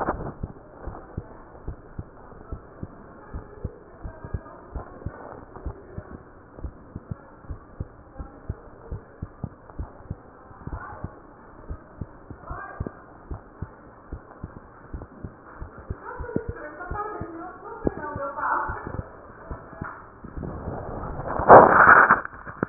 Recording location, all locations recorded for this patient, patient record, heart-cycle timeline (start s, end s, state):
mitral valve (MV)
aortic valve (AV)+pulmonary valve (PV)+tricuspid valve (TV)+mitral valve (MV)
#Age: Child
#Sex: Female
#Height: 138.0 cm
#Weight: 33.5 kg
#Pregnancy status: False
#Murmur: Unknown
#Murmur locations: nan
#Most audible location: nan
#Systolic murmur timing: nan
#Systolic murmur shape: nan
#Systolic murmur grading: nan
#Systolic murmur pitch: nan
#Systolic murmur quality: nan
#Diastolic murmur timing: nan
#Diastolic murmur shape: nan
#Diastolic murmur grading: nan
#Diastolic murmur pitch: nan
#Diastolic murmur quality: nan
#Outcome: Normal
#Campaign: 2015 screening campaign
0.00	0.46	unannotated
0.46	0.86	diastole
0.86	0.96	S1
0.96	1.16	systole
1.16	1.26	S2
1.26	1.66	diastole
1.66	1.78	S1
1.78	1.96	systole
1.96	2.08	S2
2.08	2.52	diastole
2.52	2.62	S1
2.62	2.81	systole
2.81	2.92	S2
2.92	3.34	diastole
3.34	3.44	S1
3.44	3.62	systole
3.62	3.72	S2
3.72	4.03	diastole
4.03	4.16	S1
4.16	4.31	systole
4.31	4.42	S2
4.42	4.74	diastole
4.74	4.84	S1
4.84	5.03	systole
5.03	5.14	S2
5.14	5.64	diastole
5.64	5.76	S1
5.76	5.92	systole
5.92	6.06	S2
6.06	6.62	diastole
6.62	6.74	S1
6.74	6.93	systole
6.93	7.04	S2
7.04	7.50	diastole
7.50	7.60	S1
7.60	7.79	systole
7.79	7.88	S2
7.88	8.17	diastole
8.17	8.30	S1
8.30	8.48	systole
8.48	8.58	S2
8.58	8.91	diastole
8.91	8.99	S1
8.99	9.19	systole
9.19	9.30	S2
9.30	9.76	diastole
9.76	9.88	S1
9.88	10.06	systole
10.06	10.20	S2
10.20	10.70	diastole
10.70	10.82	S1
10.82	11.01	systole
11.01	11.12	S2
11.12	11.67	diastole
11.67	11.80	S1
11.80	11.96	systole
11.96	12.10	S2
12.10	12.48	diastole
12.48	12.62	S1
12.62	12.77	systole
12.77	12.90	S2
12.90	13.28	diastole
13.28	13.42	S1
13.42	13.59	systole
13.59	13.70	S2
13.70	14.08	diastole
14.08	14.22	S1
14.22	14.40	systole
14.40	14.50	S2
14.50	14.90	diastole
14.90	15.06	S1
15.06	15.21	systole
15.21	15.34	S2
15.34	15.60	diastole
15.60	15.72	S1
15.72	22.69	unannotated